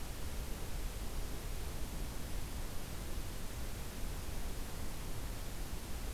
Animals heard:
forest ambience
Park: Acadia National Park